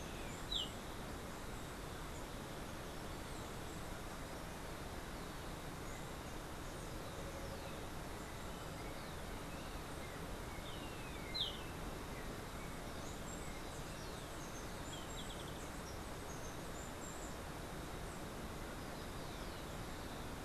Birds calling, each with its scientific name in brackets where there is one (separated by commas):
Golden-faced Tyrannulet (Zimmerius chrysops)